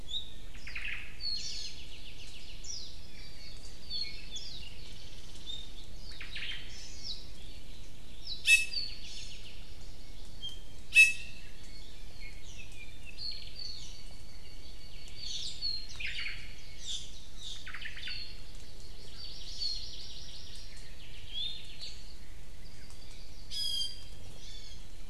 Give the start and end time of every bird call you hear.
[0.00, 0.50] Iiwi (Drepanis coccinea)
[0.40, 1.30] Omao (Myadestes obscurus)
[0.50, 0.90] Warbling White-eye (Zosterops japonicus)
[1.20, 2.60] Apapane (Himatione sanguinea)
[1.30, 1.80] Iiwi (Drepanis coccinea)
[2.10, 3.00] Warbling White-eye (Zosterops japonicus)
[4.30, 4.70] Warbling White-eye (Zosterops japonicus)
[4.70, 5.80] Chinese Hwamei (Garrulax canorus)
[5.40, 5.80] Iiwi (Drepanis coccinea)
[5.90, 6.30] Warbling White-eye (Zosterops japonicus)
[6.00, 6.80] Omao (Myadestes obscurus)
[6.70, 7.10] Hawaii Amakihi (Chlorodrepanis virens)
[7.00, 7.40] Apapane (Himatione sanguinea)
[8.20, 9.60] Apapane (Himatione sanguinea)
[8.40, 9.50] Iiwi (Drepanis coccinea)
[10.90, 11.50] Iiwi (Drepanis coccinea)
[12.40, 12.70] Iiwi (Drepanis coccinea)
[12.50, 15.20] Apapane (Himatione sanguinea)
[15.10, 15.60] Iiwi (Drepanis coccinea)
[15.80, 16.70] Warbling White-eye (Zosterops japonicus)
[15.90, 16.60] Omao (Myadestes obscurus)
[16.70, 17.70] Iiwi (Drepanis coccinea)
[17.50, 18.40] Omao (Myadestes obscurus)
[18.00, 18.50] Hawaii Akepa (Loxops coccineus)
[18.80, 20.70] Hawaii Amakihi (Chlorodrepanis virens)
[20.70, 22.00] Apapane (Himatione sanguinea)
[21.20, 22.30] Iiwi (Drepanis coccinea)
[23.50, 24.90] Iiwi (Drepanis coccinea)

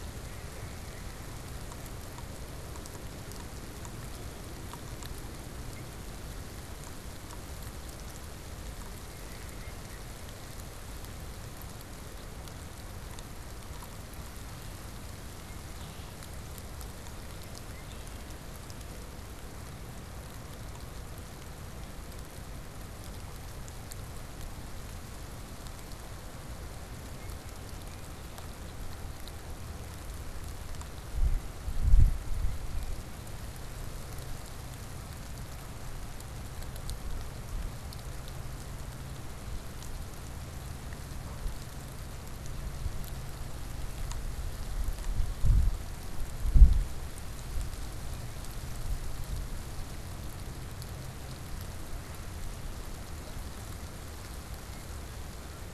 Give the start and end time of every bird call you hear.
[0.26, 1.46] Mallard (Anas platyrhynchos)
[15.46, 18.26] Red-winged Blackbird (Agelaius phoeniceus)
[27.16, 28.16] Red-winged Blackbird (Agelaius phoeniceus)
[41.06, 41.36] Canada Goose (Branta canadensis)

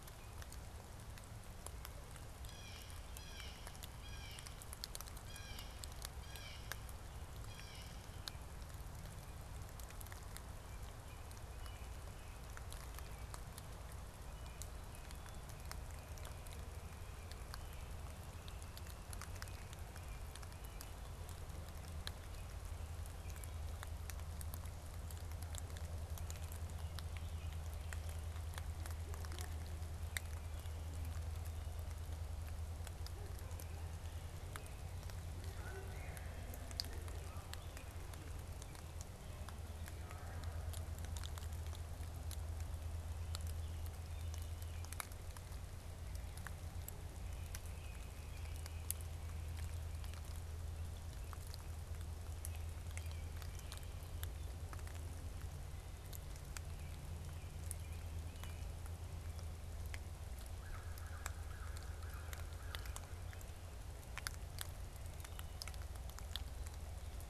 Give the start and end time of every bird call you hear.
[2.27, 8.37] Blue Jay (Cyanocitta cristata)
[10.37, 21.07] American Robin (Turdus migratorius)
[22.17, 23.57] American Robin (Turdus migratorius)
[46.97, 48.97] American Robin (Turdus migratorius)
[52.77, 53.87] American Robin (Turdus migratorius)
[55.77, 58.77] American Robin (Turdus migratorius)
[60.57, 63.17] American Crow (Corvus brachyrhynchos)

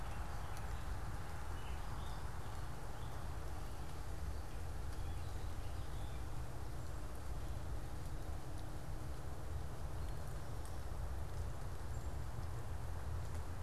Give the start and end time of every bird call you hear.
[0.00, 6.40] Gray Catbird (Dumetella carolinensis)
[11.80, 12.20] unidentified bird

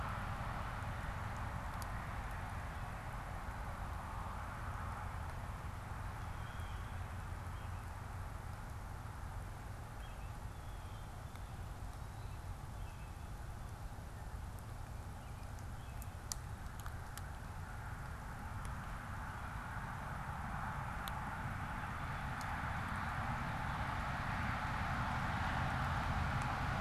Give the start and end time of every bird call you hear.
[5.94, 6.94] Blue Jay (Cyanocitta cristata)
[7.34, 10.34] American Robin (Turdus migratorius)
[10.44, 11.14] Blue Jay (Cyanocitta cristata)
[11.94, 16.24] American Robin (Turdus migratorius)

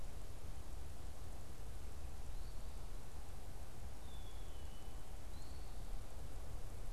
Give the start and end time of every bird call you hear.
[2.30, 2.80] unidentified bird
[3.90, 5.10] Black-capped Chickadee (Poecile atricapillus)
[5.30, 5.70] unidentified bird

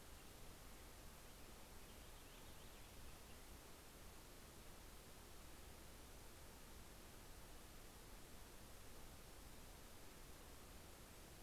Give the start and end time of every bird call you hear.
[1.36, 4.06] Purple Finch (Haemorhous purpureus)

